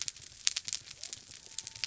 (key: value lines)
label: biophony
recorder: SoundTrap 300